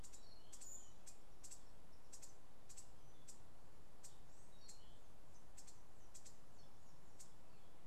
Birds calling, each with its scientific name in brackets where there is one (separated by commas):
Cabanis's Wren (Cantorchilus modestus)